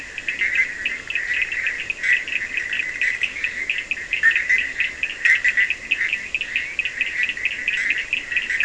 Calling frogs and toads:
Cochran's lime tree frog, Leptodactylus latrans
Atlantic Forest, Brazil, 4am

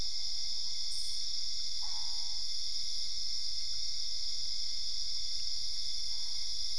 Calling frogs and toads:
Boana albopunctata
Cerrado, Brazil, 11pm

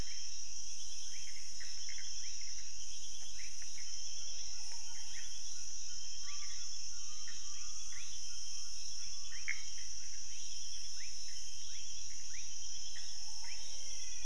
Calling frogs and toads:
rufous frog, Pithecopus azureus, menwig frog
Cerrado, Brazil, 11:30pm

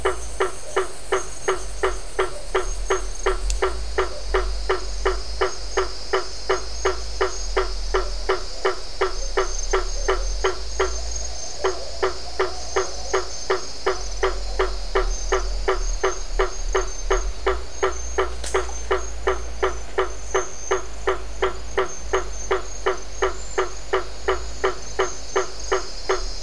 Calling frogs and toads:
blacksmith tree frog
Atlantic Forest, Brazil, 6:30pm

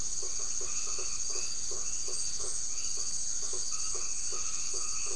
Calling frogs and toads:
white-edged tree frog, blacksmith tree frog
Atlantic Forest, Brazil, 9:30pm

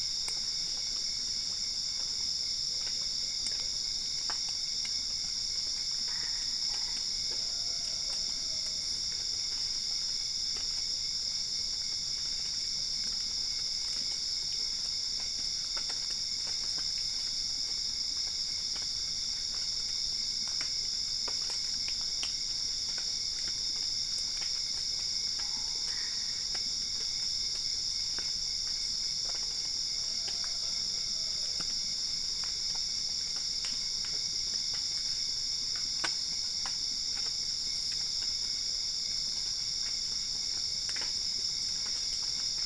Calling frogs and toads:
Boana albopunctata
Cerrado, Brazil, ~4am

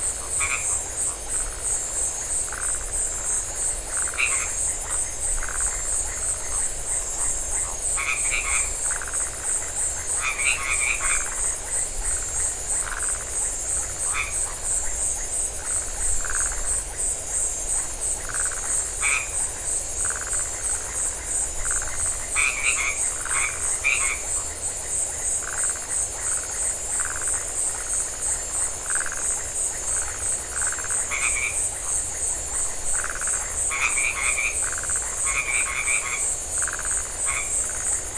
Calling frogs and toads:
Phyllomedusa distincta, white-edged tree frog
Atlantic Forest, Brazil, 8:30pm

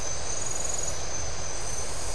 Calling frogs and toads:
none
Atlantic Forest, Brazil, 2am

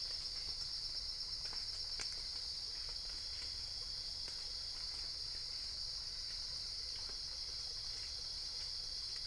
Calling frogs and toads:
none
Cerrado, Brazil, 3am

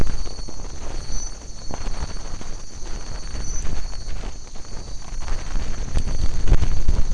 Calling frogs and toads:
none
Atlantic Forest, Brazil, 2am

